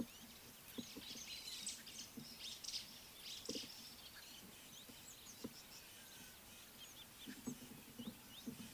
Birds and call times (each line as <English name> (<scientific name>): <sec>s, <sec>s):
White-browed Sparrow-Weaver (Plocepasser mahali): 2.7s